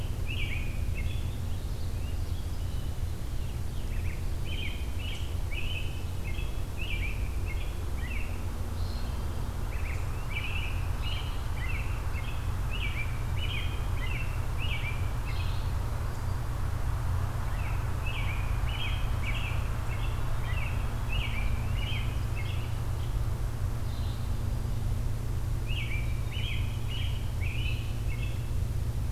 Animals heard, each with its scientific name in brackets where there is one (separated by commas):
Red-eyed Vireo (Vireo olivaceus), American Robin (Turdus migratorius)